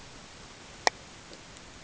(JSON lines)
{"label": "ambient", "recorder": "HydroMoth"}